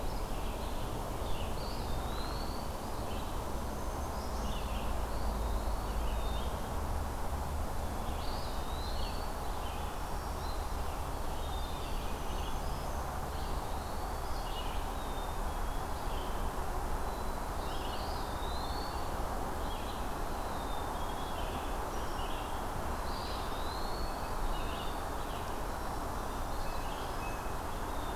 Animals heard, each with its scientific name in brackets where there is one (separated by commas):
Blue Jay (Cyanocitta cristata), Eastern Wood-Pewee (Contopus virens), Red-eyed Vireo (Vireo olivaceus), Black-throated Green Warbler (Setophaga virens), Black-capped Chickadee (Poecile atricapillus)